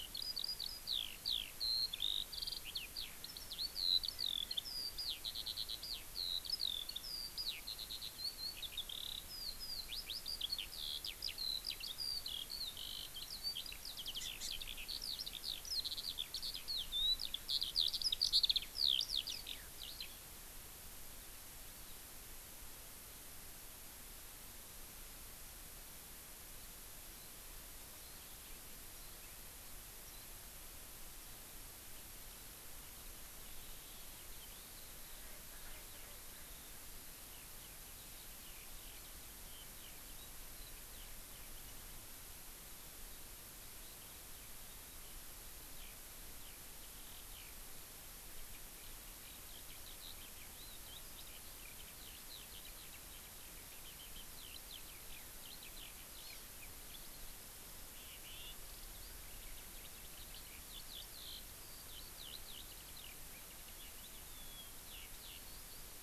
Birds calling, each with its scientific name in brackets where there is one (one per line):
Eurasian Skylark (Alauda arvensis)
Hawaii Amakihi (Chlorodrepanis virens)
Erckel's Francolin (Pternistis erckelii)